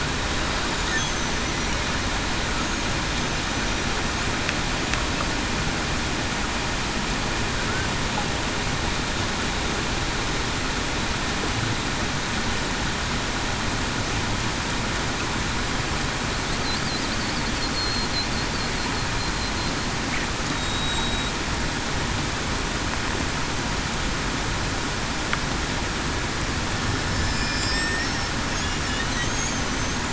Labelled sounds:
1.0	1.3	killer whale, Bigg's (transient), 6.0 to 6.3 kHz
17.7	18.1	killer whale, Bigg's (transient), 4.1 to 4.3 kHz
20.5	21.3	killer whale, Bigg's (transient), 3.7 to 3.9 kHz
27.1	27.9	killer whale, Bigg's (transient), 4.8 to 5.5 kHz

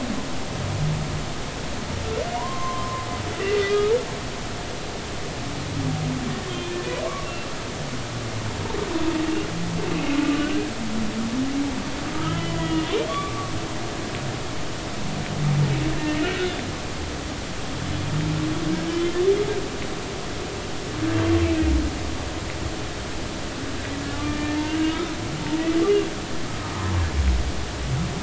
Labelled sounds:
2.3	3.0	humpback whale, 0.90 to 1.2 kHz
3.7	3.9	humpback whale, 1.2 to 1.3 kHz
12.1	13.5	humpback whale, 1.1 to 3.5 kHz
16.0	16.3	humpback whale, 1.8 to 2.0 kHz
18.9	19.2	humpback whale, 3.0 to 3.2 kHz
21.4	21.7	humpback whale, 2.4 to 2.7 kHz
24.1	25.2	humpback whale, 1.1 to 2.9 kHz
25.5	25.8	humpback whale, 1.9 to 2.0 kHz

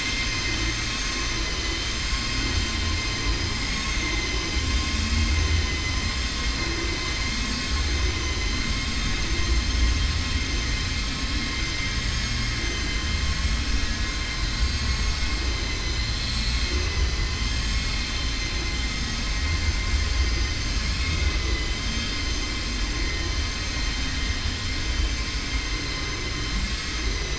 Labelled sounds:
0.7	1.7	vessel noise, 5.8 to 7.1 kHz
14.6	15.2	vessel noise, 4.6 to 7.5 kHz

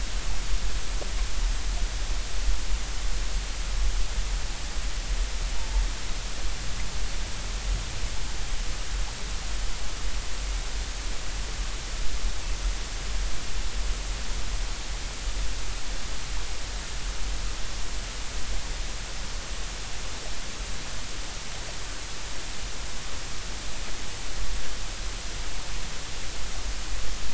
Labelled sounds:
5.6	5.8	humpback whale, 0.83 to 0.99 kHz

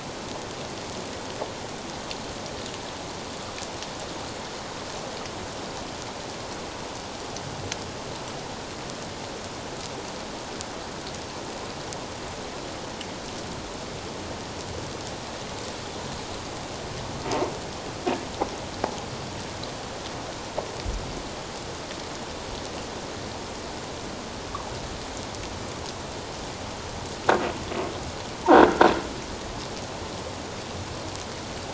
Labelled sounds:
28.5	28.8	croaking sound likely from a nearby submerged object, 1.3 to 1.7 kHz

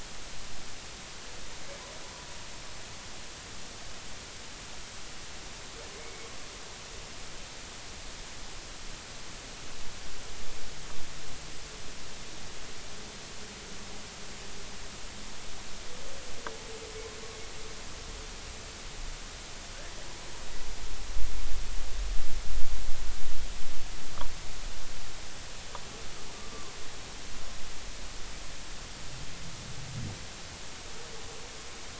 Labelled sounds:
6.0	6.3	humpback whale, 2.1 to 2.3 kHz

